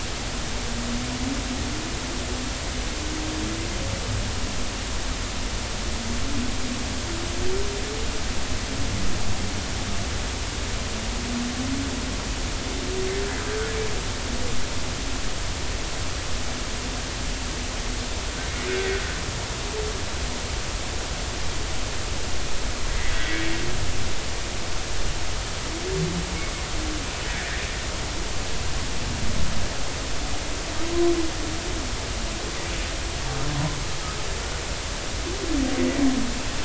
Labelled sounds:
23.2	23.4	humpback whale, 1.8 to 2.3 kHz
27.3	27.6	humpback whale, 1.6 to 2.0 kHz
35.8	36.0	humpback whale, 1.9 to 2.0 kHz

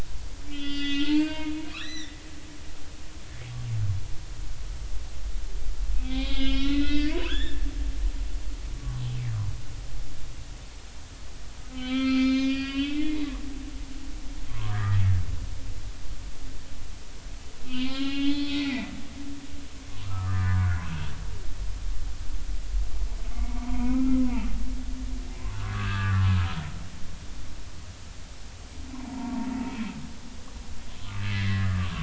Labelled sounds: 0.5	2.2	humpback whale, 0.86 to 6.1 kHz
6.0	9.0	humpback whale, 0.99 to 7.1 kHz
11.7	13.1	humpback whale, 1.1 to 5.1 kHz
14.5	15.0	humpback whale, 0.93 to 2.0 kHz
17.7	18.9	humpback whale, 0.96 to 5.6 kHz
19.9	20.8	humpback whale, 0.96 to 1.8 kHz
23.5	24.5	humpback whale, 0.86 to 1.4 kHz
25.4	26.5	humpback whale, 0.99 to 1.9 kHz
28.9	29.5	humpback whale, 0.80 to 1.1 kHz
31.2	31.9	humpback whale, 1.1 to 2.3 kHz

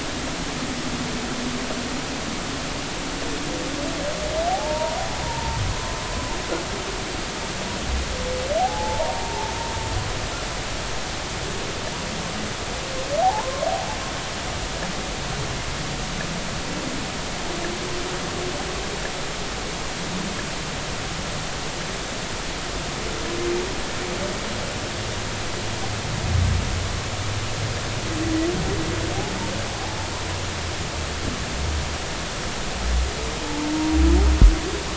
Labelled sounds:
4.5	5.6	humpback whale, 0.80 to 1.0 kHz
8.6	9.5	humpback whale, 0.80 to 1.0 kHz
13.2	13.7	humpback whale, 0.80 to 1.2 kHz

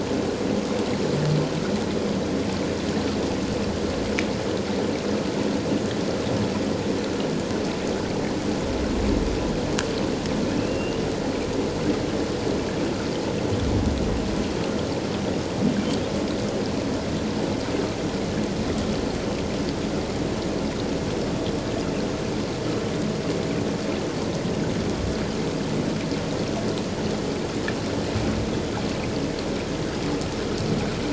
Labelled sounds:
10.6	11.0	humpback whale, 2.6 to 2.9 kHz

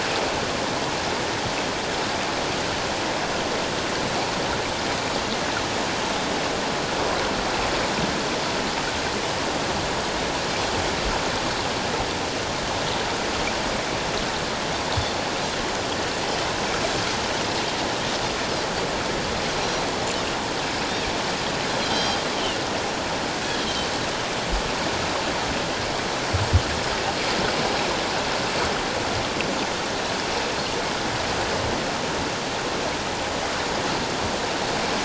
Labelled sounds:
19.6	19.9	Pacific white-sided dolphin, 4.0 to 5.8 kHz
21.8	22.2	Pacific white-sided dolphin, 3.1 to 4.8 kHz
23.6	23.9	Pacific white-sided dolphin, 3.0 to 3.3 kHz

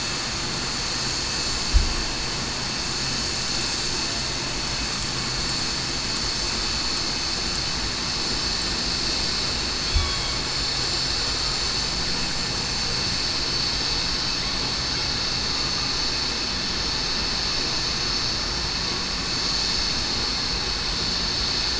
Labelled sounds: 9.9	10.4	killer whale, southern resident, 3.2 to 3.5 kHz

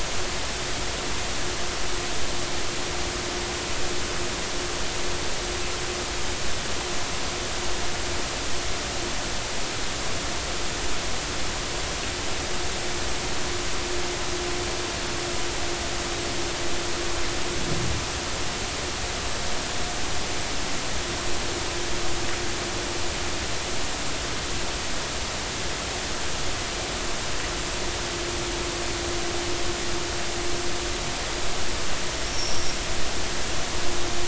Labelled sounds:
32.3	32.8	vessel noise, 5.3 to 5.7 kHz

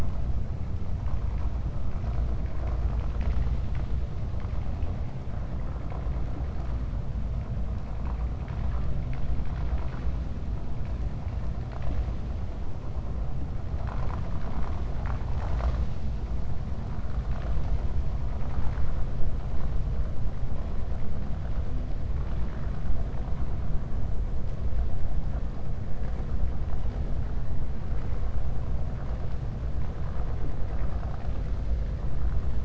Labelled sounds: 2.5	3.9	vessel noise, 0.63 to 6.2 kHz
8.3	8.9	vessel noise, 0.82 to 3.6 kHz
13.7	14.3	vessel noise, 0.56 to 2.7 kHz

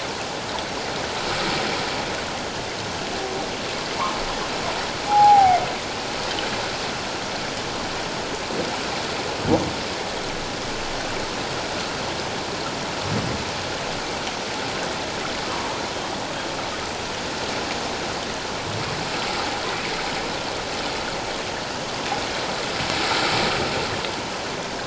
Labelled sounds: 5.1	5.6	humpback whale, 0.78 to 0.94 kHz

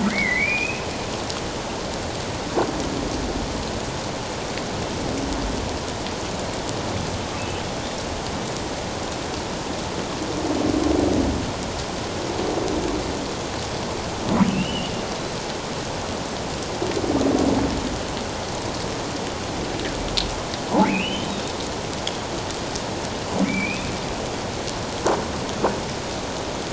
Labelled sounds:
0.0	0.9	humpback whale, 1.8 to 2.7 kHz
14.5	14.9	humpback whale, 2.5 to 3.1 kHz
20.8	21.5	humpback whale, 1.9 to 3.9 kHz
23.4	23.9	humpback whale, 2.1 to 2.7 kHz

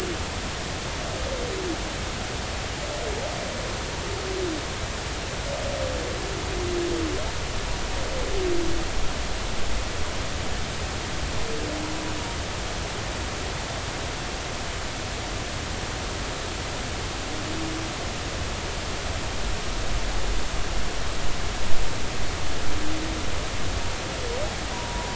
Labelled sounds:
24.7	25.1	humpback whale, 0.90 to 1.0 kHz

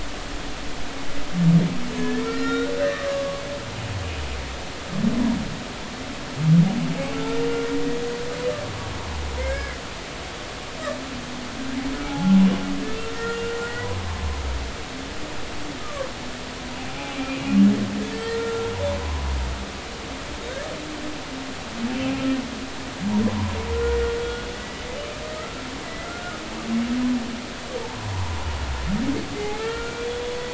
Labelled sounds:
1.9	3.4	humpback whale, 1.0 to 3.8 kHz
7.1	7.6	humpback whale, 1.3 to 2.8 kHz
9.4	9.8	humpback whale, 1.5 to 2.3 kHz
12.0	12.4	humpback whale, 0.80 to 0.90 kHz
13.1	13.9	humpback whale, 1.4 to 1.9 kHz
15.8	16.1	humpback whale, 0.99 to 1.3 kHz
16.9	17.4	humpback whale, 2.3 to 2.5 kHz
18.1	18.7	humpback whale, 1.3 to 2.0 kHz
19.0	19.3	humpback whale, 0.96 to 1.1 kHz
21.9	22.1	humpback whale, 2.5 to 2.8 kHz
23.7	24.0	humpback whale, 1.3 to 1.5 kHz
24.5	26.4	humpback whale, 1.2 to 2.1 kHz
27.8	28.5	humpback whale, 0.80 to 1.2 kHz
29.3	30.1	humpback whale, 1.3 to 2.2 kHz

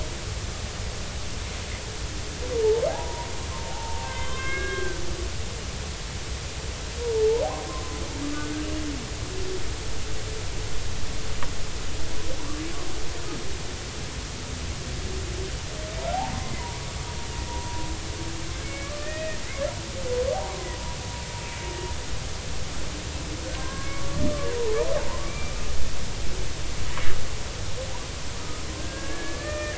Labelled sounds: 2.6	3.3	humpback whale, 0.80 to 1.1 kHz
3.7	5.0	humpback whale, 0.80 to 3.8 kHz
7.1	8.7	humpback whale, 0.83 to 1.7 kHz
16.1	17.1	humpback whale, 0.80 to 2.1 kHz
17.5	17.9	humpback whale, 0.90 to 1.0 kHz
18.6	19.4	humpback whale, 1.7 to 2.6 kHz
19.8	20.1	humpback whale, 1.1 to 1.2 kHz
23.6	24.3	humpback whale, 0.99 to 1.7 kHz
25.3	25.5	humpback whale, 2.2 to 2.4 kHz
28.8	29.7	humpback whale, 1.2 to 2.5 kHz

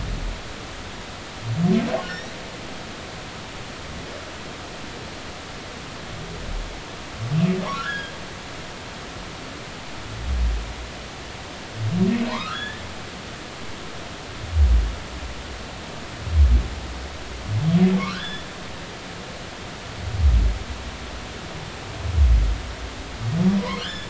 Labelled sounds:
7.7	8.1	humpback whale, 1.3 to 5.1 kHz
12.3	12.8	humpback whale, 0.90 to 1.9 kHz
18.1	18.5	humpback whale, 1.3 to 3.6 kHz
23.6	24.0	humpback whale, 0.93 to 3.6 kHz

